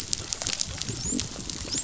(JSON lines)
{"label": "biophony, dolphin", "recorder": "SoundTrap 500"}